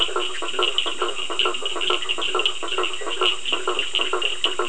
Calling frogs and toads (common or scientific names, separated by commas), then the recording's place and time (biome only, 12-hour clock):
Leptodactylus latrans, blacksmith tree frog, Cochran's lime tree frog
Atlantic Forest, 9:00pm